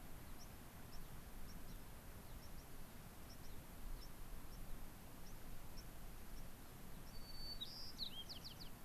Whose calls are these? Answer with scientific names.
Leucosticte tephrocotis, Zonotrichia leucophrys